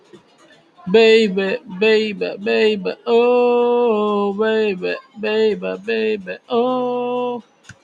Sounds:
Sigh